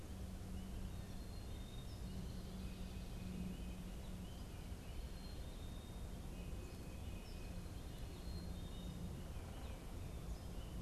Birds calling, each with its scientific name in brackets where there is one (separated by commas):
Black-capped Chickadee (Poecile atricapillus)